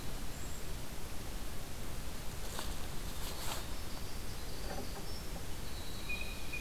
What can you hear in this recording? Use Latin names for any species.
Troglodytes hiemalis, Cyanocitta cristata